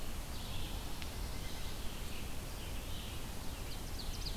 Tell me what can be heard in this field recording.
Red-eyed Vireo, Black-throated Blue Warbler, American Robin, Ovenbird